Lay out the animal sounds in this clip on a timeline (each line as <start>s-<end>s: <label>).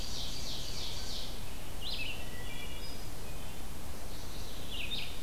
0.0s-1.4s: Ovenbird (Seiurus aurocapilla)
0.0s-5.2s: Red-eyed Vireo (Vireo olivaceus)
2.2s-3.6s: Wood Thrush (Hylocichla mustelina)